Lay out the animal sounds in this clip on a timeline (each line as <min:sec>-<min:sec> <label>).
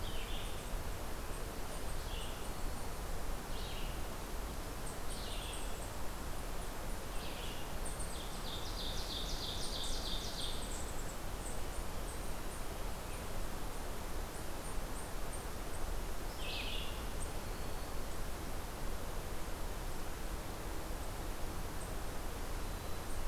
0:00.0-0:07.7 Red-eyed Vireo (Vireo olivaceus)
0:01.0-0:03.1 Eastern Chipmunk (Tamias striatus)
0:04.6-0:06.1 Eastern Chipmunk (Tamias striatus)
0:08.0-0:11.0 Ovenbird (Seiurus aurocapilla)
0:09.3-0:17.5 Eastern Chipmunk (Tamias striatus)
0:16.0-0:17.3 Red-eyed Vireo (Vireo olivaceus)